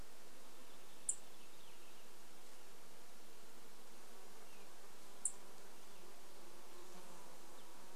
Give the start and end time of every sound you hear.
0s-2s: Dark-eyed Junco call
0s-2s: Purple Finch song
0s-8s: insect buzz
4s-6s: Dark-eyed Junco call
4s-6s: Purple Finch song
6s-8s: unidentified sound

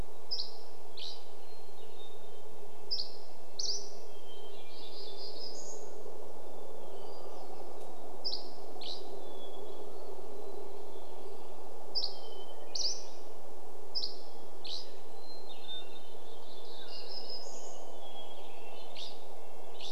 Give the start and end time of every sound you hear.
0s-4s: Dusky Flycatcher song
0s-20s: airplane
2s-4s: Hermit Thrush song
2s-4s: Mountain Quail call
2s-6s: Red-breasted Nuthatch song
4s-6s: warbler song
6s-20s: Hermit Thrush song
8s-16s: Dusky Flycatcher song
12s-20s: Red-breasted Nuthatch song
14s-18s: Mountain Quail call
16s-18s: warbler song
18s-20s: Dusky Flycatcher song

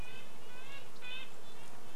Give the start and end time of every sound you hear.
0s-2s: Red-breasted Nuthatch song
0s-2s: insect buzz

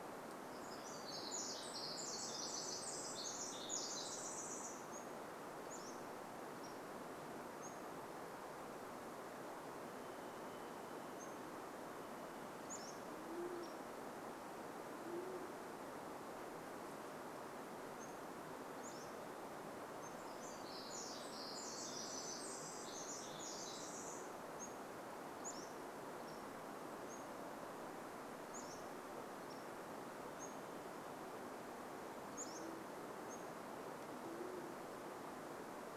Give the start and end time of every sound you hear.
0s-2s: Pacific-slope Flycatcher song
0s-6s: Pacific Wren song
4s-8s: Pacific-slope Flycatcher song
10s-12s: Varied Thrush song
10s-14s: Pacific-slope Flycatcher song
12s-16s: Band-tailed Pigeon call
18s-20s: Pacific-slope Flycatcher song
20s-26s: Pacific Wren song
22s-34s: Pacific-slope Flycatcher song
32s-36s: Band-tailed Pigeon call

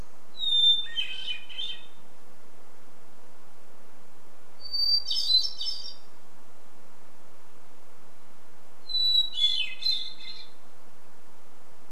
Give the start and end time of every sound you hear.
0s-2s: Hermit Thrush song
4s-6s: Hermit Thrush song
8s-12s: Hermit Thrush song

